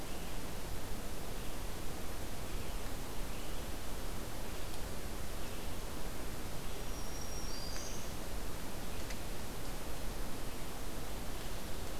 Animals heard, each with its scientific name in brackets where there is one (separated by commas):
Black-throated Green Warbler (Setophaga virens)